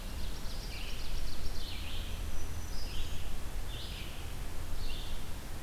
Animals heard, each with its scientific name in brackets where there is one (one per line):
Red-eyed Vireo (Vireo olivaceus)
Ovenbird (Seiurus aurocapilla)
Black-throated Green Warbler (Setophaga virens)